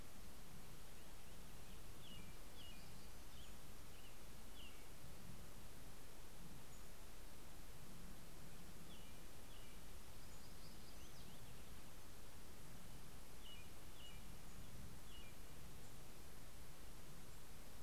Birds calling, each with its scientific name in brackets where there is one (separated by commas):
Purple Finch (Haemorhous purpureus), American Robin (Turdus migratorius), Black-throated Gray Warbler (Setophaga nigrescens), Pacific-slope Flycatcher (Empidonax difficilis)